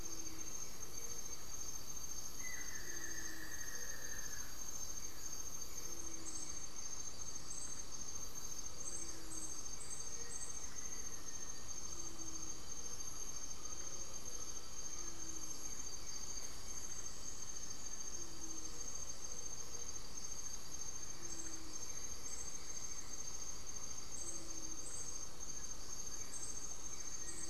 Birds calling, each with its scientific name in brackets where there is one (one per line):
Gray-fronted Dove (Leptotila rufaxilla)
Black-faced Antthrush (Formicarius analis)
Buff-throated Woodcreeper (Xiphorhynchus guttatus)
Blue-gray Saltator (Saltator coerulescens)
Great Antshrike (Taraba major)